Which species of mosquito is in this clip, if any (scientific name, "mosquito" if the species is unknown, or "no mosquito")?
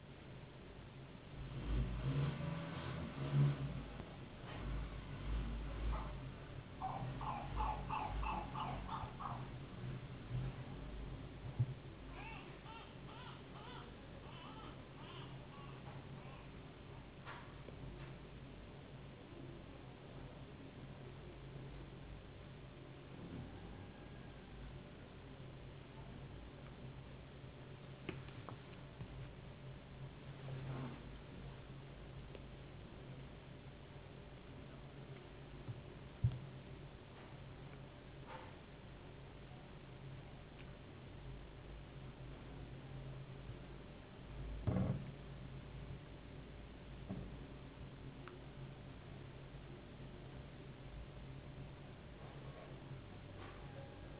no mosquito